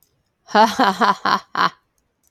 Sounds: Laughter